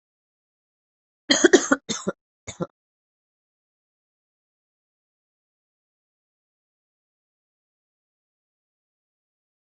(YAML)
expert_labels:
- quality: good
  cough_type: dry
  dyspnea: false
  wheezing: false
  stridor: false
  choking: false
  congestion: false
  nothing: true
  diagnosis: COVID-19
  severity: mild
age: 22
gender: female
respiratory_condition: false
fever_muscle_pain: false
status: healthy